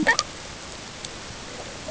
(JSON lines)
{"label": "ambient", "recorder": "HydroMoth"}